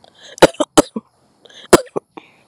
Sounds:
Cough